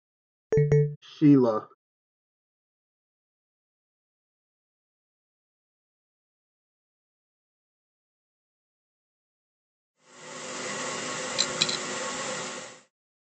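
From 9.93 to 12.92 seconds, the sound of a hair dryer is audible, fading in and then fading out. At 0.5 seconds, you can hear a telephone. Next, at 1.21 seconds, someone says "Sheila." Later, at 11.37 seconds, a coin drops.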